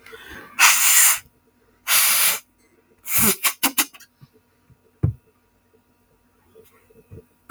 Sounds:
Sniff